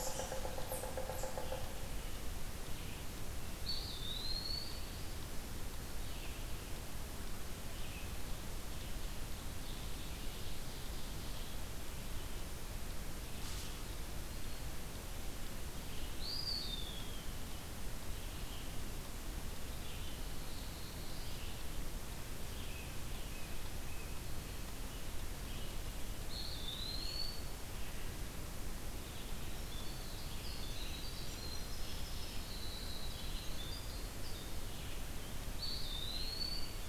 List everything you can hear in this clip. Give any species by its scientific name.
unknown mammal, Sphyrapicus varius, Vireo olivaceus, Contopus virens, Seiurus aurocapilla, Setophaga caerulescens, Baeolophus bicolor, Troglodytes hiemalis